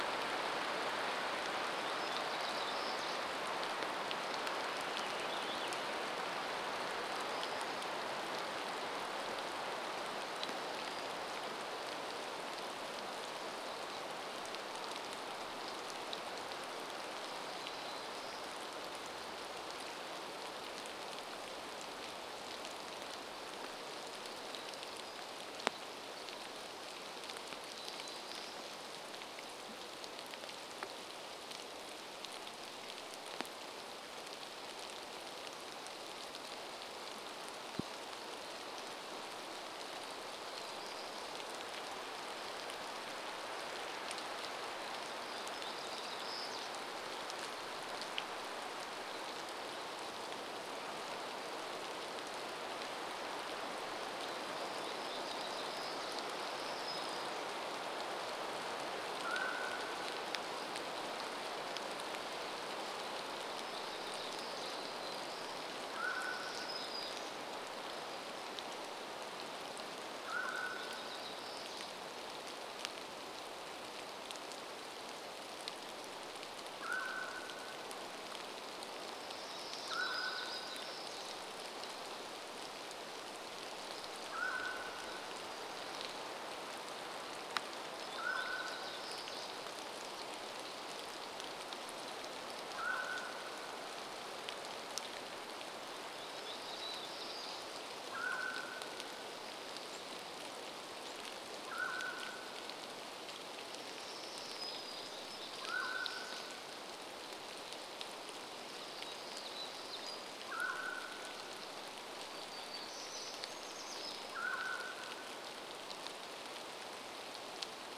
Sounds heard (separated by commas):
Mountain Quail call, Pacific Wren song, Hermit Thrush song, rain, warbler song